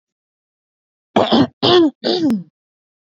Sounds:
Throat clearing